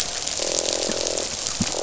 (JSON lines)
{"label": "biophony, croak", "recorder": "SoundTrap 500"}